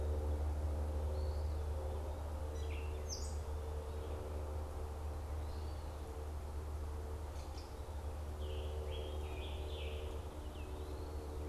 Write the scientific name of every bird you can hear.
Contopus virens, Dumetella carolinensis, Piranga olivacea